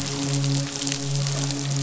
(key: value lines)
label: biophony, midshipman
recorder: SoundTrap 500